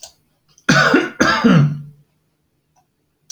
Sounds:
Cough